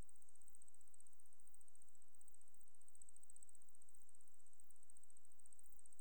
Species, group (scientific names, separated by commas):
Decticus albifrons, Orthoptera